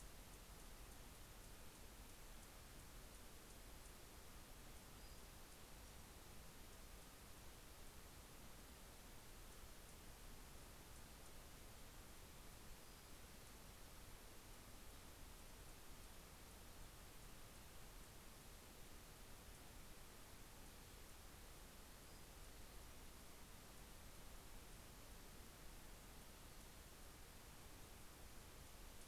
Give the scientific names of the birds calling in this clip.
Calypte anna, Empidonax difficilis